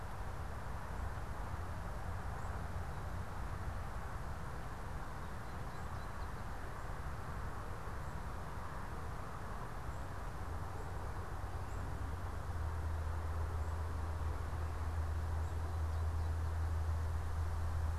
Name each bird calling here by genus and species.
Spinus tristis